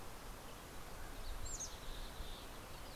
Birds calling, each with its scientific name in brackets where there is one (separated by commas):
Mountain Chickadee (Poecile gambeli), Mountain Quail (Oreortyx pictus)